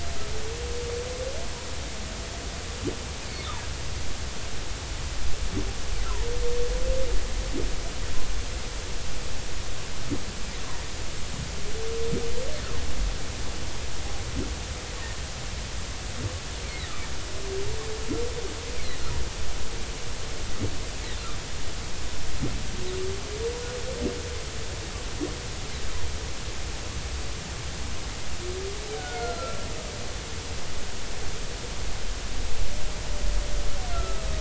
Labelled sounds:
16.6	16.9	humpback whale, 1.7 to 2.4 kHz
29.0	29.6	humpback whale, 1.3 to 1.5 kHz
33.9	34.2	humpback whale, 1.2 to 1.4 kHz

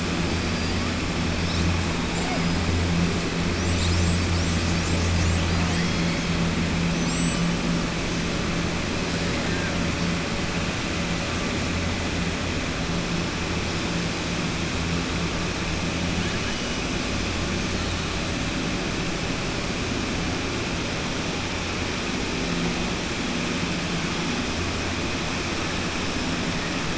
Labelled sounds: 6.9	7.4	killer whale, southern resident, 4.7 to 7.8 kHz

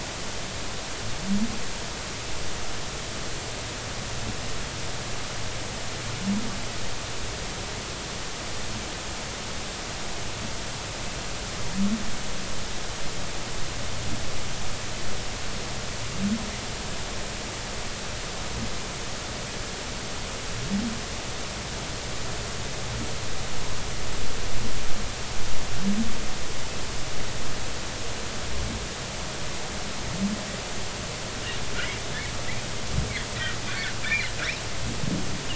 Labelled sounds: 34.0	34.3	humpback whale, 1.9 to 2.5 kHz

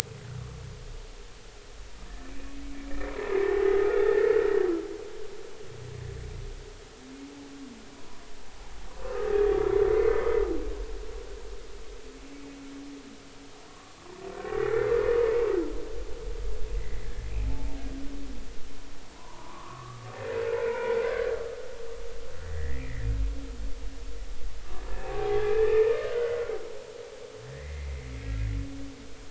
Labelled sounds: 2.0	2.3	humpback whale, 1.7 to 1.8 kHz
3.4	4.3	humpback whale, 0.80 to 2.0 kHz
9.0	9.3	humpback whale, 1.1 to 1.3 kHz
9.9	10.3	humpback whale, 2.0 to 2.2 kHz
13.7	14.7	humpback whale, 0.99 to 2.0 kHz
16.7	17.0	humpback whale, 1.8 to 2.1 kHz
19.2	20.0	humpback whale, 0.86 to 1.4 kHz
20.6	21.4	humpback whale, 0.83 to 2.5 kHz
22.4	23.1	humpback whale, 1.6 to 2.5 kHz
25.4	26.6	humpback whale, 0.80 to 3.2 kHz
27.5	28.1	humpback whale, 1.8 to 2.2 kHz

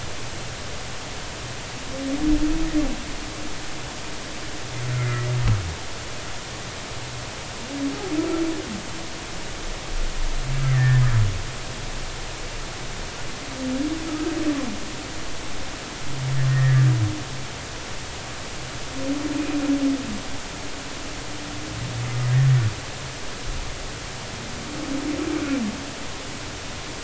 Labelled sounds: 4.9	5.3	humpback whale, 1.8 to 2.2 kHz
10.7	11.0	humpback whale, 1.6 to 1.9 kHz
16.5	16.9	humpback whale, 1.6 to 2.0 kHz

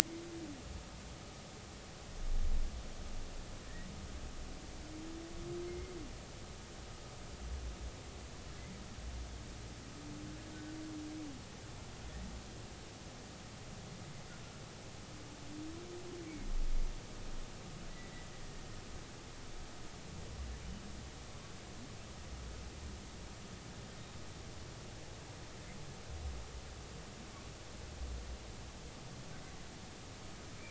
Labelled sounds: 5.6	5.9	humpback whale, 2.0 to 2.2 kHz

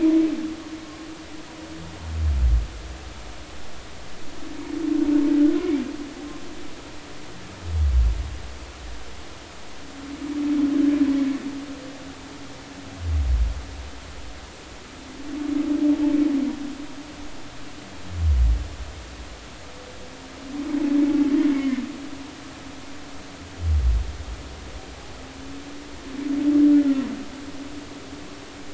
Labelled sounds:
21.5	21.8	humpback whale, 2.0 to 2.3 kHz

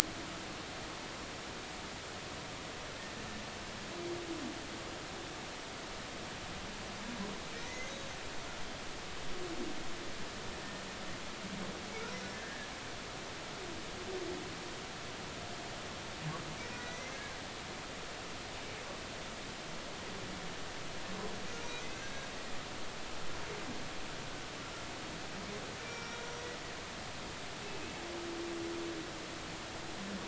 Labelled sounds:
7.5	8.1	humpback whale, 1.8 to 6.6 kHz
12.4	12.7	humpback whale, 1.6 to 1.9 kHz
16.7	17.2	humpback whale, 1.9 to 2.2 kHz
21.5	22.3	humpback whale, 1.5 to 6.4 kHz
25.8	26.5	humpback whale, 2.3 to 5.9 kHz
27.6	28.0	humpback whale, 2.5 to 2.7 kHz

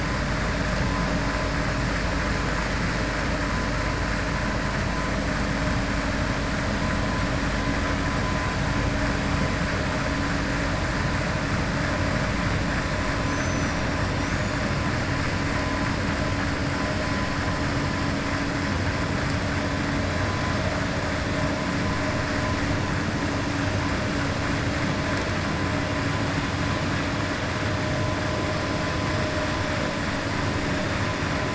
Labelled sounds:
13.2	13.8	killer whale, 5.6 to 7.1 kHz

